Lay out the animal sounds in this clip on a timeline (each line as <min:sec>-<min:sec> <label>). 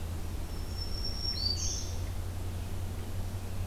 0:00.0-0:03.7 Red-eyed Vireo (Vireo olivaceus)
0:00.3-0:02.1 Black-throated Green Warbler (Setophaga virens)